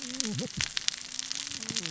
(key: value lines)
label: biophony, cascading saw
recorder: SoundTrap 600 or HydroMoth